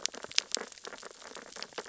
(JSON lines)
{"label": "biophony, sea urchins (Echinidae)", "recorder": "SoundTrap 600 or HydroMoth"}